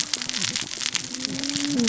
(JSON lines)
{"label": "biophony, cascading saw", "recorder": "SoundTrap 600 or HydroMoth"}